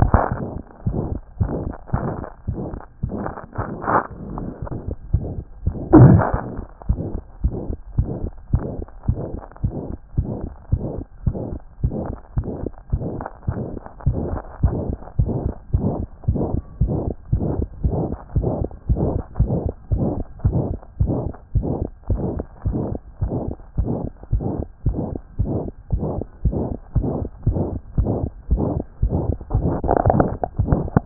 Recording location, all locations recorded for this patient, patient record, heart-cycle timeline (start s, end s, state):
tricuspid valve (TV)
aortic valve (AV)+pulmonary valve (PV)+tricuspid valve (TV)+mitral valve (MV)
#Age: Child
#Sex: Male
#Height: 115.0 cm
#Weight: 17.1 kg
#Pregnancy status: False
#Murmur: Present
#Murmur locations: aortic valve (AV)+mitral valve (MV)+pulmonary valve (PV)+tricuspid valve (TV)
#Most audible location: pulmonary valve (PV)
#Systolic murmur timing: Mid-systolic
#Systolic murmur shape: Diamond
#Systolic murmur grading: III/VI or higher
#Systolic murmur pitch: Medium
#Systolic murmur quality: Harsh
#Diastolic murmur timing: nan
#Diastolic murmur shape: nan
#Diastolic murmur grading: nan
#Diastolic murmur pitch: nan
#Diastolic murmur quality: nan
#Outcome: Normal
#Campaign: 2014 screening campaign
0.00	6.88	unannotated
6.88	7.02	S1
7.02	7.14	systole
7.14	7.22	S2
7.22	7.42	diastole
7.42	7.54	S1
7.54	7.68	systole
7.68	7.76	S2
7.76	7.96	diastole
7.96	8.08	S1
8.08	8.22	systole
8.22	8.32	S2
8.32	8.52	diastole
8.52	8.64	S1
8.64	8.76	systole
8.76	8.86	S2
8.86	9.08	diastole
9.08	9.18	S1
9.18	9.32	systole
9.32	9.42	S2
9.42	9.62	diastole
9.62	9.74	S1
9.74	9.88	systole
9.88	9.96	S2
9.96	10.16	diastole
10.16	10.28	S1
10.28	10.42	systole
10.42	10.50	S2
10.50	10.72	diastole
10.72	10.82	S1
10.82	10.96	systole
10.96	11.04	S2
11.04	11.26	diastole
11.26	11.36	S1
11.36	11.50	systole
11.50	11.60	S2
11.60	11.82	diastole
11.82	11.94	S1
11.94	12.08	systole
12.08	12.16	S2
12.16	12.36	diastole
12.36	12.48	S1
12.48	12.62	systole
12.62	12.70	S2
12.70	12.92	diastole
12.92	13.02	S1
13.02	13.16	systole
13.16	13.26	S2
13.26	13.48	diastole
13.48	13.58	S1
13.58	13.70	systole
13.70	13.80	S2
13.80	14.06	diastole
14.06	14.18	S1
14.18	14.32	systole
14.32	14.40	S2
14.40	14.62	diastole
14.62	14.76	S1
14.76	14.88	systole
14.88	14.96	S2
14.96	15.18	diastole
15.18	15.32	S1
15.32	15.44	systole
15.44	15.54	S2
15.54	15.74	diastole
15.74	15.88	S1
15.88	15.98	systole
15.98	16.06	S2
16.06	16.28	diastole
16.28	16.40	S1
16.40	16.52	systole
16.52	16.62	S2
16.62	16.82	diastole
16.82	16.94	S1
16.94	17.06	systole
17.06	17.14	S2
17.14	17.32	diastole
17.32	17.46	S1
17.46	17.58	systole
17.58	17.68	S2
17.68	17.84	diastole
17.84	17.98	S1
17.98	18.08	systole
18.08	18.16	S2
18.16	18.36	diastole
18.36	18.48	S1
18.48	18.60	systole
18.60	18.68	S2
18.68	18.90	diastole
18.90	19.04	S1
19.04	19.14	systole
19.14	19.22	S2
19.22	19.40	diastole
19.40	19.54	S1
19.54	19.64	systole
19.64	19.72	S2
19.72	19.92	diastole
19.92	20.08	S1
20.08	20.16	systole
20.16	20.24	S2
20.24	20.46	diastole
20.46	20.62	S1
20.62	20.70	systole
20.70	20.78	S2
20.78	21.00	diastole
21.00	21.14	S1
21.14	21.24	systole
21.24	21.32	S2
21.32	21.54	diastole
21.54	21.68	S1
21.68	21.80	systole
21.80	21.88	S2
21.88	22.10	diastole
22.10	22.22	S1
22.22	22.34	systole
22.34	22.42	S2
22.42	22.66	diastole
22.66	22.80	S1
22.80	22.90	systole
22.90	23.00	S2
23.00	23.22	diastole
23.22	23.34	S1
23.34	23.46	systole
23.46	23.56	S2
23.56	23.78	diastole
23.78	23.92	S1
23.92	24.02	systole
24.02	24.10	S2
24.10	24.32	diastole
24.32	24.44	S1
24.44	24.56	systole
24.56	24.64	S2
24.64	24.86	diastole
24.86	24.98	S1
24.98	25.10	systole
25.10	25.18	S2
25.18	25.40	diastole
25.40	25.52	S1
25.52	25.64	systole
25.64	25.70	S2
25.70	25.92	diastole
25.92	26.04	S1
26.04	26.16	systole
26.16	26.24	S2
26.24	26.44	diastole
26.44	26.58	S1
26.58	26.70	systole
26.70	26.76	S2
26.76	26.96	diastole
26.96	27.10	S1
27.10	27.20	systole
27.20	27.28	S2
27.28	27.48	diastole
27.48	27.62	S1
27.62	27.72	systole
27.72	27.80	S2
27.80	27.98	diastole
27.98	28.12	S1
28.12	28.22	systole
28.22	28.30	S2
28.30	28.50	diastole
28.50	28.64	S1
28.64	28.76	systole
28.76	28.84	S2
28.84	29.02	diastole
29.02	31.06	unannotated